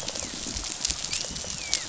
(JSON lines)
{"label": "biophony, dolphin", "recorder": "SoundTrap 500"}
{"label": "biophony, rattle response", "recorder": "SoundTrap 500"}